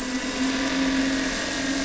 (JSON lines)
{"label": "anthrophony, boat engine", "recorder": "SoundTrap 300"}